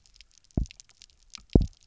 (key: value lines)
label: biophony, double pulse
recorder: SoundTrap 300